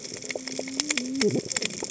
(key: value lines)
label: biophony, cascading saw
recorder: HydroMoth